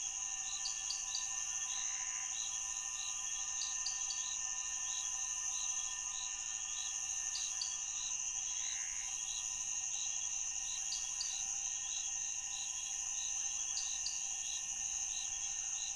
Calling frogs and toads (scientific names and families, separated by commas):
Dendropsophus nanus (Hylidae), Pithecopus azureus (Hylidae)